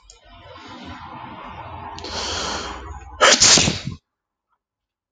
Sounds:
Sneeze